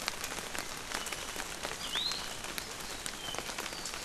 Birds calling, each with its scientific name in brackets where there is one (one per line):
Iiwi (Drepanis coccinea)